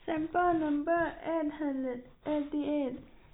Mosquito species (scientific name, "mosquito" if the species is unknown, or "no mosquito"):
no mosquito